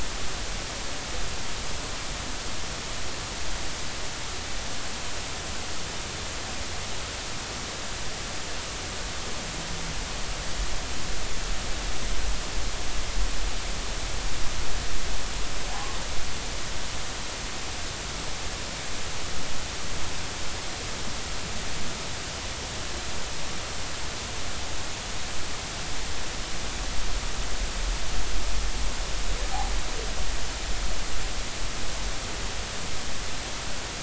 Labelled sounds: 15.7	16.0	humpback whale, 0.80 to 1.2 kHz

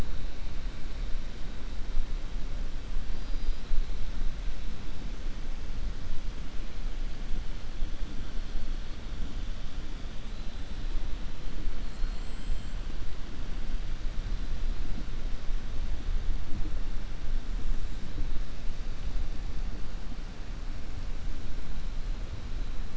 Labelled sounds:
3.1	3.6	killer whale, 4.2 to 4.9 kHz
11.8	12.7	killer whale, 3.2 to 4.5 kHz

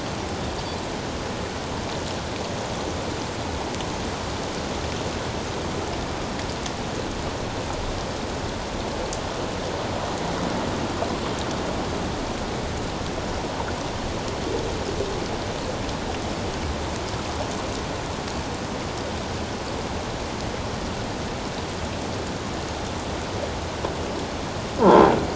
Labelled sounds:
24.8	25.1	croaking sound likely from a nearby submerged object, 0.84 to 1.1 kHz

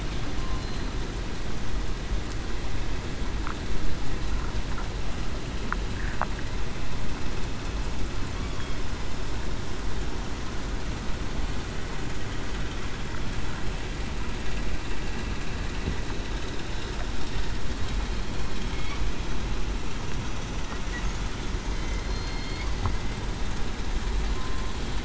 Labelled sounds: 22.0	22.6	killer whale, southern resident, 3.1 to 4.4 kHz
24.3	24.7	killer whale, southern resident, 1.0 to 1.1 kHz

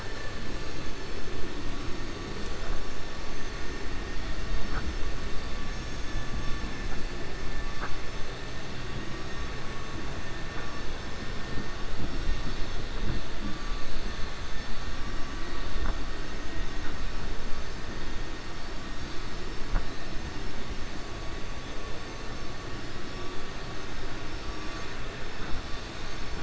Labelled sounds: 5.6	6.6	vessel noise, 4.7 to 7.3 kHz

